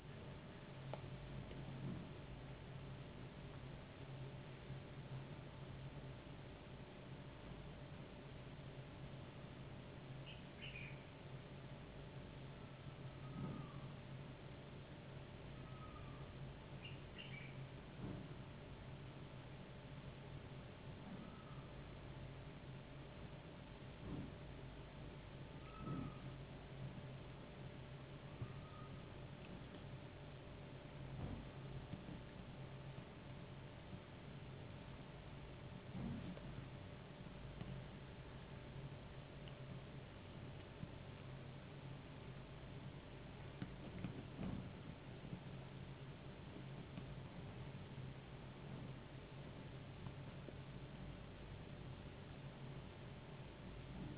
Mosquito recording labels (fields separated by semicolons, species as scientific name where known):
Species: no mosquito; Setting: insect culture